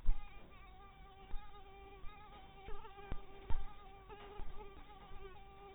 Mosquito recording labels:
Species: mosquito; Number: one; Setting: cup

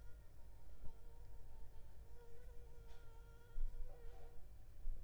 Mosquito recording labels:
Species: Anopheles arabiensis; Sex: female; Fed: unfed; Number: one; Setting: cup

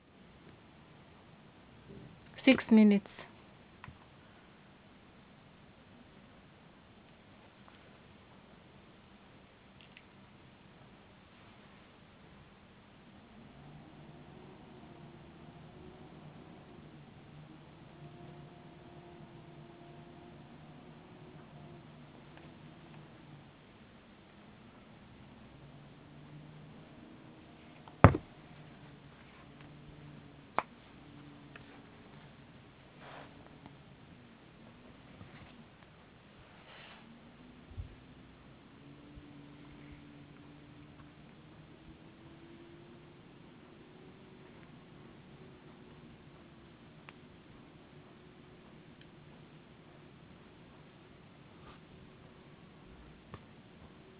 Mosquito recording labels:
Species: no mosquito; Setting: insect culture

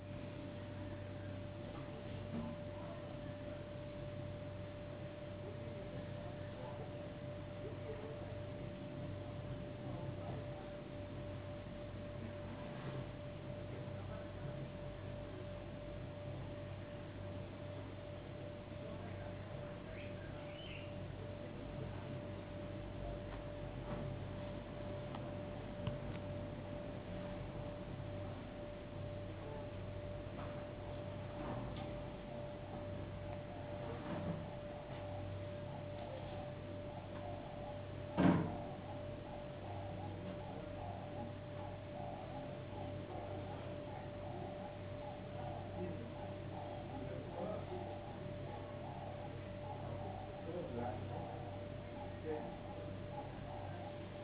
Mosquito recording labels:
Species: no mosquito; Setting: insect culture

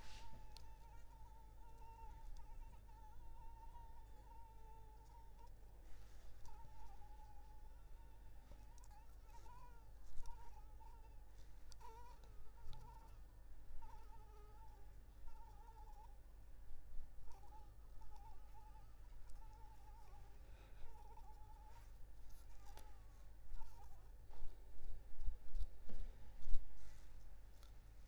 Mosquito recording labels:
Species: Anopheles arabiensis; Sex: female; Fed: unfed; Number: one; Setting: cup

